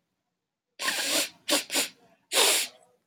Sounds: Sniff